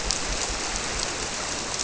{"label": "biophony", "recorder": "SoundTrap 300"}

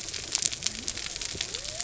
{"label": "biophony", "recorder": "SoundTrap 300"}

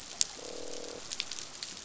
{"label": "biophony, croak", "recorder": "SoundTrap 500"}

